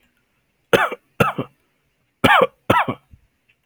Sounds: Cough